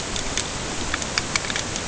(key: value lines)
label: ambient
recorder: HydroMoth